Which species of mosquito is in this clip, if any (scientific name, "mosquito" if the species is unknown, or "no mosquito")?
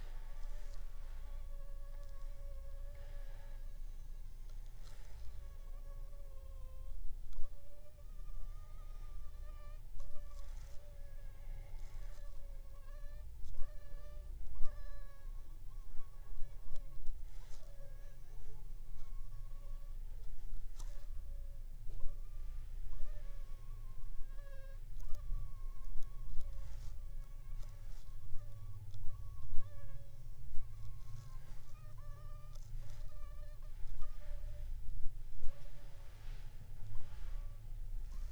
Anopheles funestus s.s.